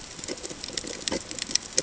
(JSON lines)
{"label": "ambient", "recorder": "HydroMoth"}